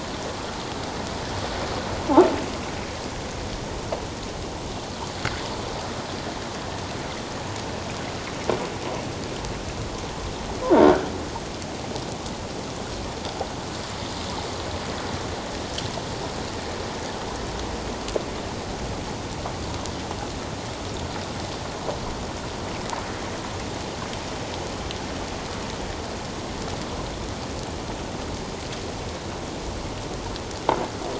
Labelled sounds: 10.8	11.1	croaking sound likely from a nearby submerged object, 1.2 to 1.7 kHz

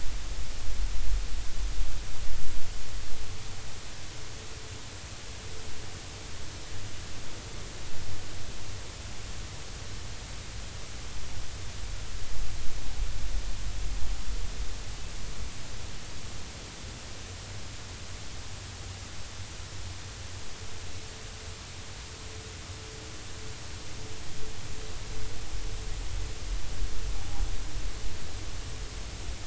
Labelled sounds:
27.2	27.4	noise likely from the mooring, 0.80 to 0.86 kHz

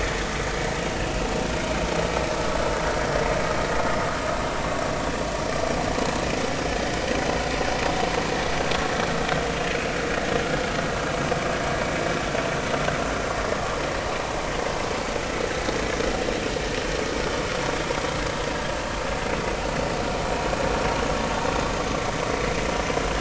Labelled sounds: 0.8	1.1	vessel noise, 2.7 to 2.9 kHz
14.9	15.1	vessel noise, 4.6 to 4.7 kHz

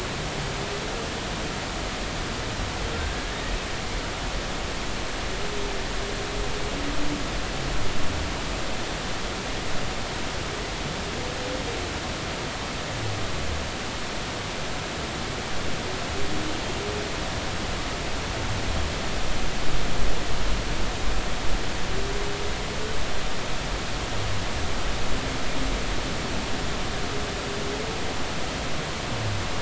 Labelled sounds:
4.0	4.3	humpback whale, 1.5 to 1.7 kHz

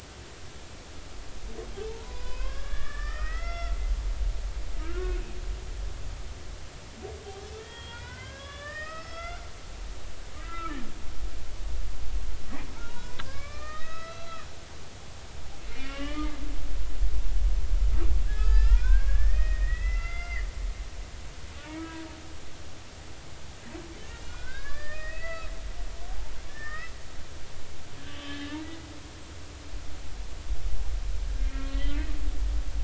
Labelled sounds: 1.9	3.8	humpback whale, 0.80 to 5.5 kHz
4.8	5.2	humpback whale, 1.2 to 1.5 kHz
7.6	9.5	humpback whale, 0.86 to 5.5 kHz
10.0	10.8	humpback whale, 1.2 to 4.8 kHz
12.9	14.5	humpback whale, 0.90 to 6.0 kHz
15.7	16.4	humpback whale, 1.1 to 3.3 kHz
18.3	20.5	humpback whale, 1.1 to 5.4 kHz
21.8	22.1	humpback whale, 1.6 to 1.7 kHz
24.3	25.5	humpback whale, 1.0 to 4.7 kHz
26.5	26.9	humpback whale, 1.2 to 2.0 kHz
28.0	28.6	humpback whale, 1.6 to 3.5 kHz
31.4	32.1	humpback whale, 1.6 to 4.0 kHz

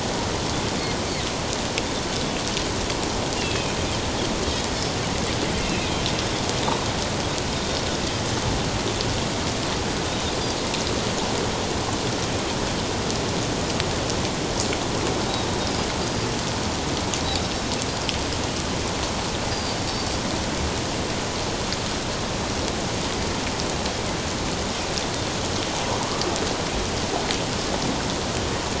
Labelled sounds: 3.4	3.8	Pacific white-sided dolphin, 2.4 to 3.4 kHz
5.6	6.0	Pacific white-sided dolphin, 2.4 to 2.8 kHz
10.1	10.3	Pacific white-sided dolphin, 3.5 to 3.8 kHz
16.0	16.3	Pacific white-sided dolphin, 4.7 to 4.9 kHz
19.5	19.8	Pacific white-sided dolphin, 4.6 to 4.9 kHz

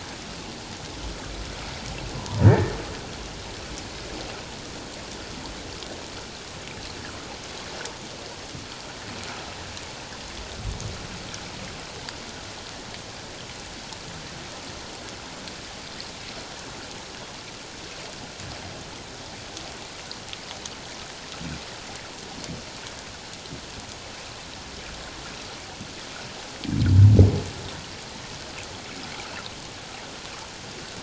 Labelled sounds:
2.2	2.8	humpback whale, 0.91 to 1.9 kHz

